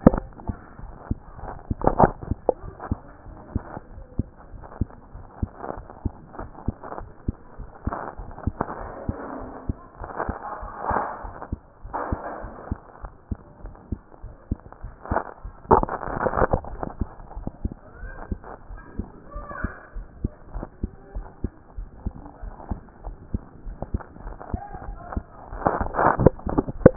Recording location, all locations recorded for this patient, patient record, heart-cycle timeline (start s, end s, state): mitral valve (MV)
aortic valve (AV)+pulmonary valve (PV)+tricuspid valve (TV)+mitral valve (MV)
#Age: Child
#Sex: Female
#Height: 129.0 cm
#Weight: 27.7 kg
#Pregnancy status: False
#Murmur: Absent
#Murmur locations: nan
#Most audible location: nan
#Systolic murmur timing: nan
#Systolic murmur shape: nan
#Systolic murmur grading: nan
#Systolic murmur pitch: nan
#Systolic murmur quality: nan
#Diastolic murmur timing: nan
#Diastolic murmur shape: nan
#Diastolic murmur grading: nan
#Diastolic murmur pitch: nan
#Diastolic murmur quality: nan
#Outcome: Abnormal
#Campaign: 2014 screening campaign
0.00	17.03	unannotated
17.03	17.06	S2
17.06	17.36	diastole
17.36	17.48	S1
17.48	17.62	systole
17.62	17.72	S2
17.72	18.02	diastole
18.02	18.14	S1
18.14	18.30	systole
18.30	18.40	S2
18.40	18.70	diastole
18.70	18.82	S1
18.82	18.98	systole
18.98	19.08	S2
19.08	19.34	diastole
19.34	19.46	S1
19.46	19.62	systole
19.62	19.72	S2
19.72	19.96	diastole
19.96	20.06	S1
20.06	20.22	systole
20.22	20.32	S2
20.32	20.54	diastole
20.54	20.66	S1
20.66	20.82	systole
20.82	20.92	S2
20.92	21.14	diastole
21.14	21.26	S1
21.26	21.42	systole
21.42	21.52	S2
21.52	21.78	diastole
21.78	21.88	S1
21.88	22.04	systole
22.04	22.14	S2
22.14	22.42	diastole
22.42	22.54	S1
22.54	22.70	systole
22.70	22.80	S2
22.80	23.04	diastole
23.04	23.16	S1
23.16	23.32	systole
23.32	23.42	S2
23.42	23.66	diastole
23.66	23.78	S1
23.78	23.92	systole
23.92	24.02	S2
24.02	24.24	diastole
24.24	24.36	S1
24.36	24.52	systole
24.52	24.60	S2
24.60	24.86	diastole
24.86	24.98	S1
24.98	25.14	systole
25.14	25.24	S2
25.24	25.44	diastole
25.44	26.96	unannotated